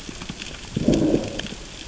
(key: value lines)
label: biophony, growl
recorder: SoundTrap 600 or HydroMoth